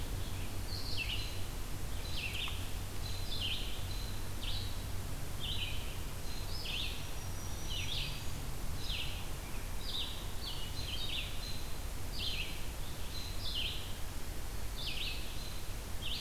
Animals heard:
Red-eyed Vireo (Vireo olivaceus)
Black-throated Green Warbler (Setophaga virens)
American Robin (Turdus migratorius)

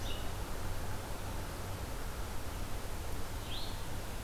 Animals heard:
Blue-headed Vireo (Vireo solitarius)

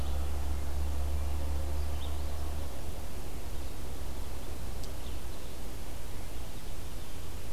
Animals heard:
Red-eyed Vireo (Vireo olivaceus)

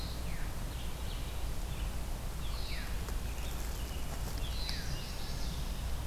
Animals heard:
Chestnut-sided Warbler (Setophaga pensylvanica)
Red-eyed Vireo (Vireo olivaceus)
Veery (Catharus fuscescens)

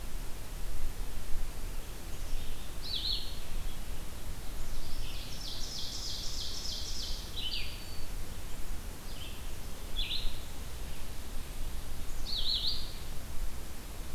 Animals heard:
Ovenbird (Seiurus aurocapilla)
Red-eyed Vireo (Vireo olivaceus)
Black-capped Chickadee (Poecile atricapillus)

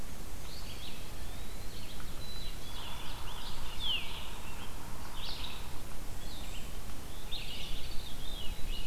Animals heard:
Veery (Catharus fuscescens)
Ovenbird (Seiurus aurocapilla)
Red-eyed Vireo (Vireo olivaceus)
Black-capped Chickadee (Poecile atricapillus)
Eastern Wood-Pewee (Contopus virens)
Yellow-bellied Sapsucker (Sphyrapicus varius)

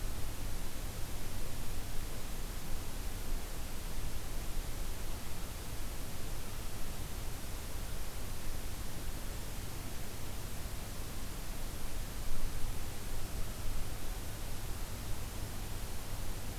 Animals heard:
American Crow (Corvus brachyrhynchos)

